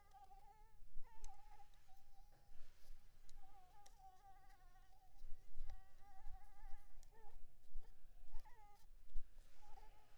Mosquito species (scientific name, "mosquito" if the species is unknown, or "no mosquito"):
Anopheles maculipalpis